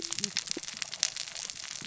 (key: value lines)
label: biophony, cascading saw
recorder: SoundTrap 600 or HydroMoth